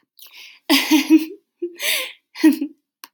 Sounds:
Laughter